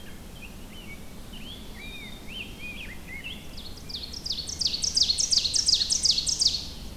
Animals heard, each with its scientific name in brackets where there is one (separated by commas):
Rose-breasted Grosbeak (Pheucticus ludovicianus), Ovenbird (Seiurus aurocapilla), American Robin (Turdus migratorius), Black-capped Chickadee (Poecile atricapillus)